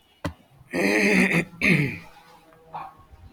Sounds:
Throat clearing